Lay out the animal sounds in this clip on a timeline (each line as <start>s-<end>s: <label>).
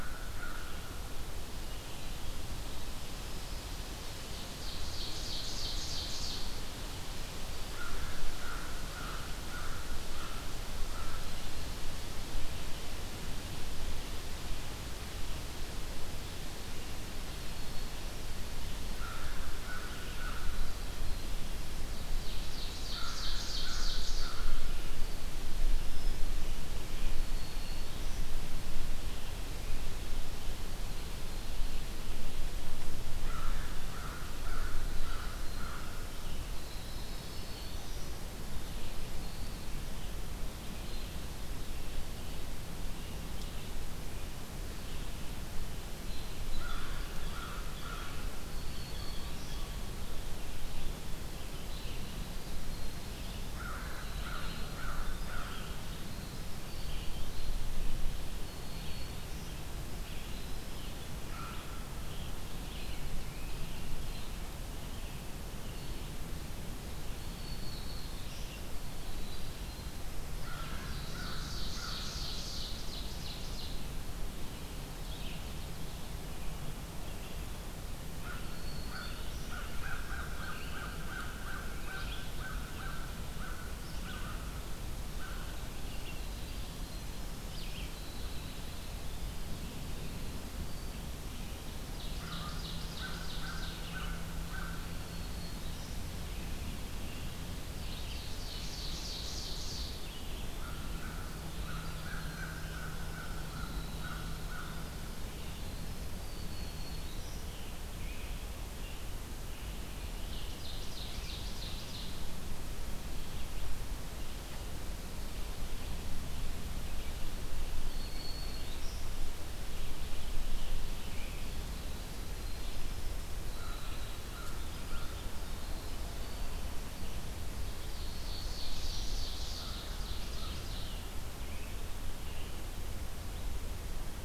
0.0s-0.8s: American Crow (Corvus brachyrhynchos)
0.0s-47.9s: Red-eyed Vireo (Vireo olivaceus)
4.1s-6.7s: Ovenbird (Seiurus aurocapilla)
7.5s-11.4s: American Crow (Corvus brachyrhynchos)
17.0s-18.3s: Black-throated Green Warbler (Setophaga virens)
18.9s-20.8s: American Crow (Corvus brachyrhynchos)
21.8s-24.4s: Ovenbird (Seiurus aurocapilla)
22.8s-24.9s: American Crow (Corvus brachyrhynchos)
27.0s-28.3s: Black-throated Green Warbler (Setophaga virens)
33.2s-36.1s: American Crow (Corvus brachyrhynchos)
34.4s-38.3s: Winter Wren (Troglodytes hiemalis)
36.7s-38.3s: Black-throated Green Warbler (Setophaga virens)
46.4s-48.3s: American Crow (Corvus brachyrhynchos)
46.7s-49.9s: Blue Jay (Cyanocitta cristata)
48.1s-49.6s: Black-throated Green Warbler (Setophaga virens)
50.3s-105.9s: Red-eyed Vireo (Vireo olivaceus)
51.5s-57.9s: Winter Wren (Troglodytes hiemalis)
53.5s-55.8s: American Crow (Corvus brachyrhynchos)
58.4s-59.5s: Black-throated Green Warbler (Setophaga virens)
61.2s-61.9s: American Crow (Corvus brachyrhynchos)
67.0s-68.5s: Black-throated Green Warbler (Setophaga virens)
70.3s-72.3s: American Crow (Corvus brachyrhynchos)
70.4s-73.9s: Ovenbird (Seiurus aurocapilla)
78.0s-79.6s: Black-throated Green Warbler (Setophaga virens)
78.0s-85.4s: American Crow (Corvus brachyrhynchos)
85.6s-91.3s: Winter Wren (Troglodytes hiemalis)
91.9s-94.1s: Ovenbird (Seiurus aurocapilla)
92.1s-94.9s: American Crow (Corvus brachyrhynchos)
94.7s-96.1s: Black-throated Green Warbler (Setophaga virens)
97.4s-100.0s: Ovenbird (Seiurus aurocapilla)
100.4s-105.1s: American Crow (Corvus brachyrhynchos)
100.5s-106.6s: Winter Wren (Troglodytes hiemalis)
106.2s-107.5s: Black-throated Green Warbler (Setophaga virens)
107.0s-134.2s: Red-eyed Vireo (Vireo olivaceus)
107.3s-111.4s: American Robin (Turdus migratorius)
110.0s-112.3s: Ovenbird (Seiurus aurocapilla)
117.5s-119.1s: Black-throated Green Warbler (Setophaga virens)
123.4s-125.2s: American Crow (Corvus brachyrhynchos)
127.6s-131.2s: Ovenbird (Seiurus aurocapilla)
129.4s-130.7s: American Crow (Corvus brachyrhynchos)
130.7s-132.6s: American Robin (Turdus migratorius)